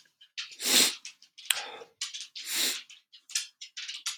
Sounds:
Sniff